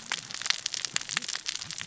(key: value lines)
label: biophony, cascading saw
recorder: SoundTrap 600 or HydroMoth